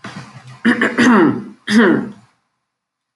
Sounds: Throat clearing